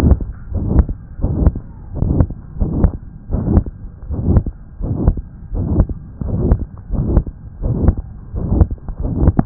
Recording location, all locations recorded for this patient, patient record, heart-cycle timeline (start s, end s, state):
aortic valve (AV)
aortic valve (AV)+pulmonary valve (PV)+tricuspid valve (TV)+mitral valve (MV)
#Age: Child
#Sex: Male
#Height: 111.0 cm
#Weight: 19.4 kg
#Pregnancy status: False
#Murmur: Present
#Murmur locations: aortic valve (AV)+mitral valve (MV)+pulmonary valve (PV)+tricuspid valve (TV)
#Most audible location: aortic valve (AV)
#Systolic murmur timing: Holosystolic
#Systolic murmur shape: Plateau
#Systolic murmur grading: III/VI or higher
#Systolic murmur pitch: High
#Systolic murmur quality: Harsh
#Diastolic murmur timing: nan
#Diastolic murmur shape: nan
#Diastolic murmur grading: nan
#Diastolic murmur pitch: nan
#Diastolic murmur quality: nan
#Outcome: Abnormal
#Campaign: 2015 screening campaign
0.00	0.46	unannotated
0.46	0.64	S1
0.64	0.82	systole
0.82	0.97	S2
0.97	1.16	diastole
1.16	1.34	S1
1.34	1.50	systole
1.50	1.62	S2
1.62	1.92	diastole
1.92	2.08	S1
2.08	2.25	systole
2.25	2.36	S2
2.36	2.55	diastole
2.55	2.68	S1
2.68	2.89	systole
2.89	3.01	S2
3.01	3.27	diastole
3.27	3.42	S1
3.42	3.60	systole
3.60	3.76	S2
3.76	4.04	diastole
4.04	4.20	S1
4.20	4.41	systole
4.41	4.55	S2
4.55	4.77	diastole
4.77	4.96	S1
4.96	5.14	systole
5.14	5.27	S2
5.27	5.49	diastole
5.49	5.64	S1
5.64	5.86	systole
5.86	5.98	S2
5.98	6.21	diastole
6.21	6.36	S1
6.36	6.56	systole
6.56	6.70	S2
6.70	6.88	diastole
6.88	7.03	S1
7.03	7.22	systole
7.22	7.37	S2
7.37	7.58	diastole
7.58	7.73	S1
7.73	7.93	systole
7.93	8.08	S2
8.08	8.30	diastole
8.30	8.48	S1
8.48	8.65	systole
8.65	8.78	S2
8.78	8.97	diastole
8.97	9.10	S1
9.10	9.46	unannotated